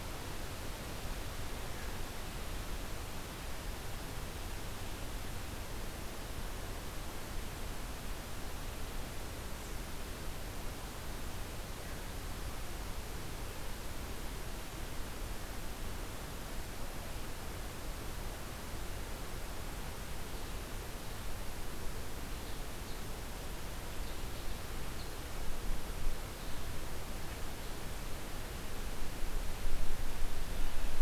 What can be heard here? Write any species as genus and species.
unidentified call